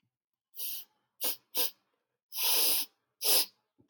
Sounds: Sniff